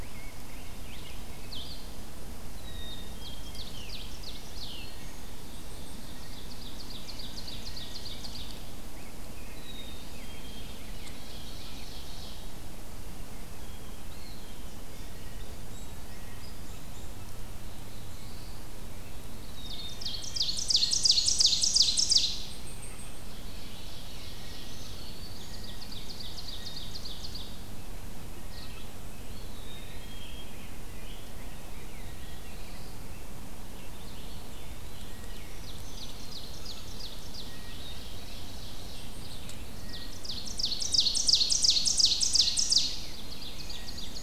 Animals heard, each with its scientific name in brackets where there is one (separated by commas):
Eastern Wood-Pewee (Contopus virens), Blackpoll Warbler (Setophaga striata), Red-eyed Vireo (Vireo olivaceus), Scarlet Tanager (Piranga olivacea), Blue Jay (Cyanocitta cristata), Red Squirrel (Tamiasciurus hudsonicus), Black-throated Blue Warbler (Setophaga caerulescens), Black-capped Chickadee (Poecile atricapillus), Rose-breasted Grosbeak (Pheucticus ludovicianus), Black-throated Green Warbler (Setophaga virens), Ovenbird (Seiurus aurocapilla)